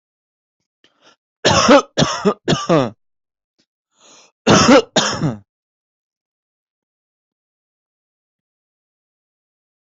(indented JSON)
{
  "expert_labels": [
    {
      "quality": "good",
      "cough_type": "dry",
      "dyspnea": false,
      "wheezing": false,
      "stridor": false,
      "choking": false,
      "congestion": false,
      "nothing": true,
      "diagnosis": "COVID-19",
      "severity": "unknown"
    }
  ],
  "age": 22,
  "gender": "male",
  "respiratory_condition": true,
  "fever_muscle_pain": true,
  "status": "COVID-19"
}